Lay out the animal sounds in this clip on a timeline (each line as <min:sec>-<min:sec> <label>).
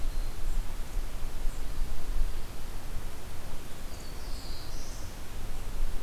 0:03.8-0:05.2 Black-throated Blue Warbler (Setophaga caerulescens)